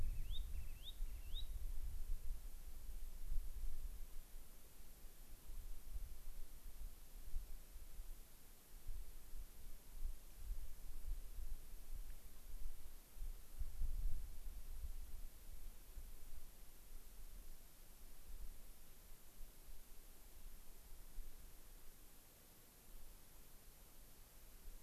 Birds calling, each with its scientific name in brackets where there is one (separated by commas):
Spotted Sandpiper (Actitis macularius)